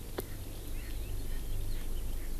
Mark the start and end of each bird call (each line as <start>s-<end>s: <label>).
0.0s-2.4s: Eurasian Skylark (Alauda arvensis)
0.2s-0.4s: Erckel's Francolin (Pternistis erckelii)
0.7s-0.9s: Erckel's Francolin (Pternistis erckelii)
1.2s-1.4s: Erckel's Francolin (Pternistis erckelii)
1.7s-1.8s: Erckel's Francolin (Pternistis erckelii)